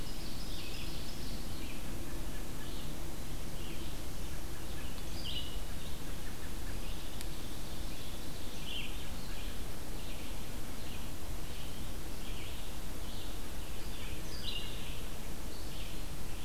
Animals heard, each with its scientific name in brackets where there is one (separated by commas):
Ovenbird (Seiurus aurocapilla), American Robin (Turdus migratorius), Red-eyed Vireo (Vireo olivaceus)